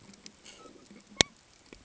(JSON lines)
{"label": "ambient", "recorder": "HydroMoth"}